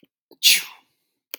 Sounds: Sneeze